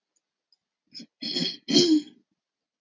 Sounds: Throat clearing